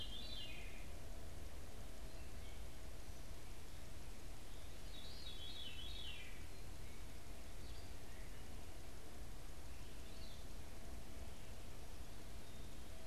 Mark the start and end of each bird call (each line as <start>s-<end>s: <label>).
0.0s-6.5s: Veery (Catharus fuscescens)
9.7s-13.1s: Veery (Catharus fuscescens)